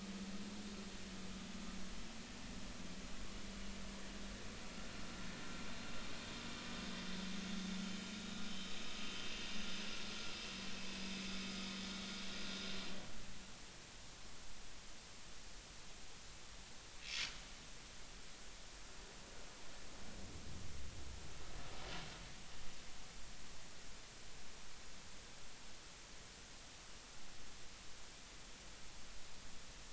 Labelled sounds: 7.8	8.4	vessel noise, 3.0 to 3.9 kHz

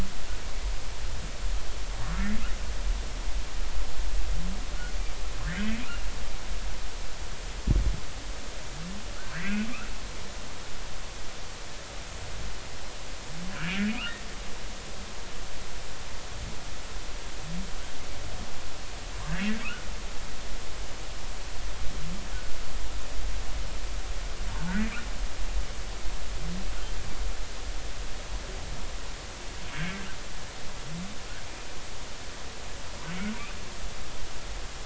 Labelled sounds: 9.3	9.7	humpback whale, 1.4 to 2.7 kHz
13.9	14.1	humpback whale, 2.2 to 3.0 kHz
24.5	25.0	humpback whale, 0.83 to 2.9 kHz

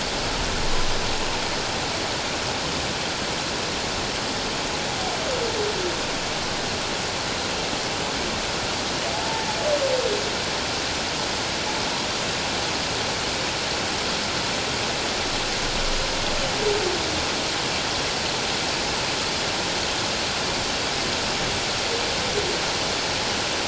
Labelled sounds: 9.1	9.5	humpback whale, 0.81 to 0.97 kHz

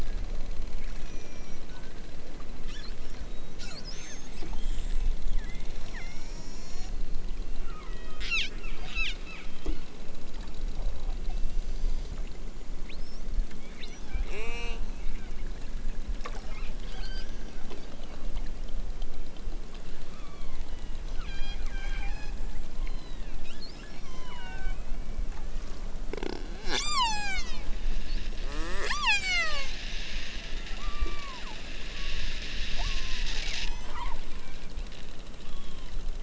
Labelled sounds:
0.9	1.7	killer whale, southern Alaska resident, 1.7 to 6.2 kHz
2.5	3.2	killer whale, southern Alaska resident, 1.1 to 8.0 kHz
5.3	7.0	killer whale, southern Alaska resident, 0.64 to 8.0 kHz
7.6	8.5	killer whale, southern Alaska resident, 0.60 to 8.0 kHz
8.8	9.5	killer whale, southern Alaska resident, 0.92 to 8.0 kHz
11.2	12.2	killer whale, southern Alaska resident, 1.0 to 7.8 kHz
12.8	13.3	killer whale, southern Alaska resident, 1.7 to 6.4 kHz
13.7	14.9	killer whale, southern Alaska resident, 0.23 to 8.0 kHz
16.3	17.4	killer whale, southern Alaska resident, 0.55 to 6.7 kHz
20.0	22.4	killer whale, southern Alaska resident, 0.64 to 6.7 kHz
22.7	25.3	killer whale, southern Alaska resident, 0.50 to 6.4 kHz
26.6	27.8	killer whale, southern Alaska resident, 0.28 to 8.0 kHz
28.4	29.7	killer whale, southern Alaska resident, 0.50 to 8.0 kHz
30.7	31.5	killer whale, southern Alaska resident, 0.69 to 5.1 kHz
31.9	32.4	killer whale, southern Alaska resident, 0.60 to 1.6 kHz
32.7	34.1	killer whale, southern Alaska resident, 0.60 to 6.7 kHz
34.4	34.7	killer whale, southern Alaska resident, 0.78 to 2.8 kHz
35.4	36.0	killer whale, southern Alaska resident, 0.69 to 3.5 kHz

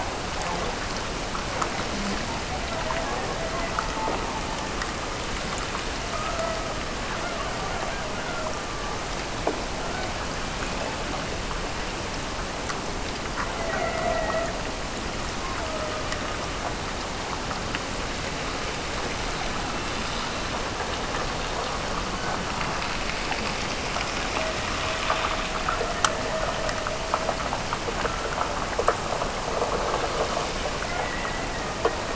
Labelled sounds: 5.9	9.1	killer whale, Bigg's (transient), Gulf of Alaska transient, 0.46 to 2.2 kHz
13.3	14.7	killer whale, Bigg's (transient), Gulf of Alaska transient, 0.48 to 2.1 kHz
15.4	16.5	killer whale, Bigg's (transient), Gulf of Alaska transient, 0.44 to 1.6 kHz
24.3	27.5	killer whale, Bigg's (transient), Gulf of Alaska transient, 0.50 to 2.0 kHz
30.9	32.1	killer whale, Bigg's (transient), Gulf of Alaska transient, 1.7 to 2.2 kHz

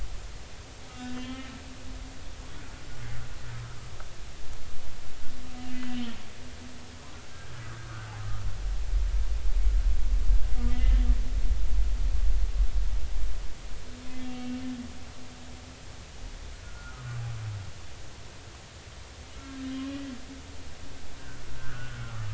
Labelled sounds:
0.9	1.5	humpback whale, 0.99 to 3.2 kHz
2.6	2.8	humpback whale, 1.3 to 1.6 kHz
5.7	6.1	humpback whale, 1.9 to 3.1 kHz
10.7	11.0	humpback whale, 1.7 to 2.1 kHz
14.2	14.6	humpback whale, 2.7 to 3.4 kHz
16.5	17.1	humpback whale, 1.2 to 1.5 kHz
21.6	22.1	humpback whale, 1.3 to 1.7 kHz

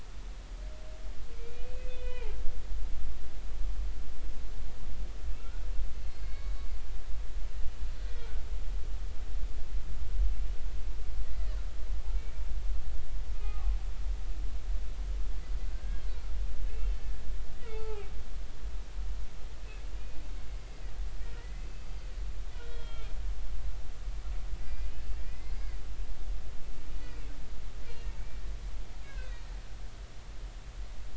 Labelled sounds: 1.3	2.3	humpback whale, 0.80 to 3.1 kHz
5.4	5.6	humpback whale, 1.3 to 1.5 kHz
6.0	6.7	humpback whale, 1.6 to 4.5 kHz
8.1	8.4	humpback whale, 1.3 to 2.4 kHz
11.3	11.6	humpback whale, 1.7 to 2.1 kHz
13.3	13.8	humpback whale, 0.80 to 1.3 kHz
15.7	16.0	humpback whale, 1.5 to 1.7 kHz
16.7	17.2	humpback whale, 1.6 to 2.8 kHz
17.6	18.1	humpback whale, 0.80 to 3.0 kHz
20.5	20.9	humpback whale, 1.8 to 4.9 kHz
21.4	22.1	humpback whale, 1.8 to 4.8 kHz
22.6	23.1	humpback whale, 1.3 to 4.3 kHz
24.6	25.7	humpback whale, 1.8 to 5.0 kHz
26.2	27.3	humpback whale, 2.1 to 2.6 kHz
29.0	29.5	humpback whale, 1.4 to 2.7 kHz

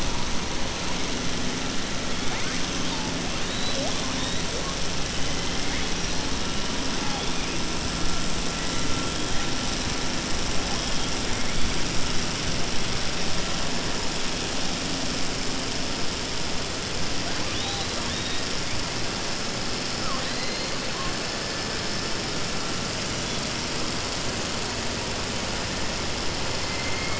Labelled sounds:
19.9	20.7	killer whale, southern resident, 0.52 to 4.6 kHz

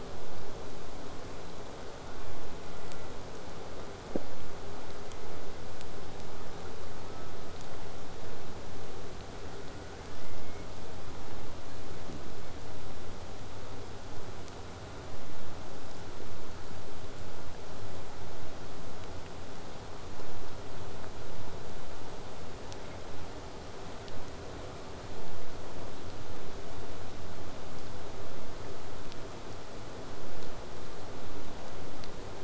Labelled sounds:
2.2	3.2	killer whale, southern resident, J pod, call S04, 0.27 to 2.4 kHz
4.8	5.7	killer whale, southern resident, J pod, call S04, 0.24 to 2.2 kHz
7.0	7.6	killer whale, southern resident, J pod, call S04, 0.59 to 1.9 kHz
9.4	10.7	killer whale, southern resident, 0.78 to 2.4 kHz

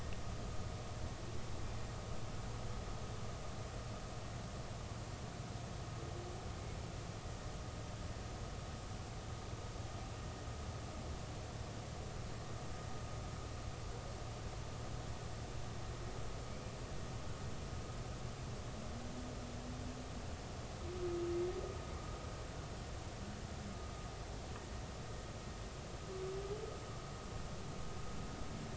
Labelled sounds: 16.5	16.8	humpback whale, 2.2 to 2.5 kHz

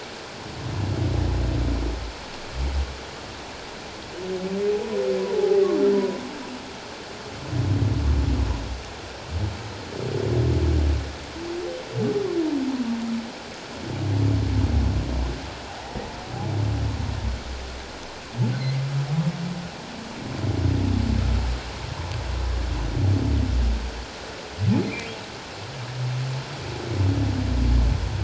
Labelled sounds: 5.3	5.6	humpback whale, 0.78 to 0.88 kHz
5.9	6.2	humpback whale, 0.94 to 1.0 kHz
24.8	25.1	humpback whale, 2.0 to 2.6 kHz

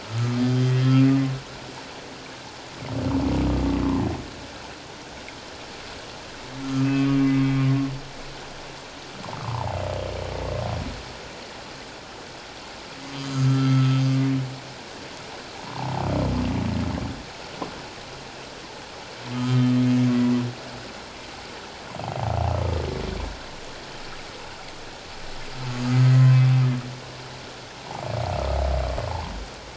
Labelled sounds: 0.0	0.8	humpback whale, 1.2 to 3.2 kHz
6.7	7.4	humpback whale, 1.2 to 2.8 kHz
9.4	9.7	humpback whale, 0.78 to 1.3 kHz
13.3	14.0	humpback whale, 1.2 to 1.4 kHz
15.6	16.0	humpback whale, 0.78 to 1.2 kHz
19.3	19.8	humpback whale, 1.2 to 3.2 kHz
22.0	22.3	humpback whale, 0.78 to 0.91 kHz
26.2	26.4	humpback whale, 1.0 to 1.1 kHz

